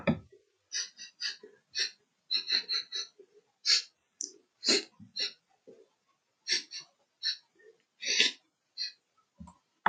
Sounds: Sniff